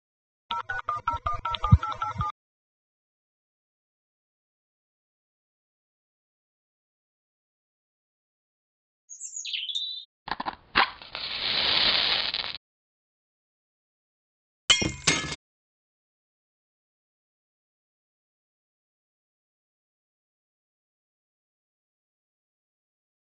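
At 0.5 seconds, you can hear a telephone. After that, at 9.1 seconds, a bird can be heard. Afterwards, at 10.3 seconds, the sound of fire is heard. Following that, at 14.7 seconds, glass shatters.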